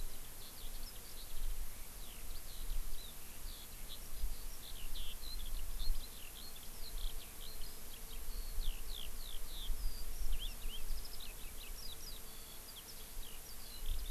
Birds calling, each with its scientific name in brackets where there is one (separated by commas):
Eurasian Skylark (Alauda arvensis)